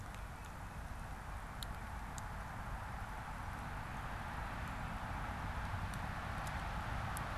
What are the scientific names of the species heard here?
Baeolophus bicolor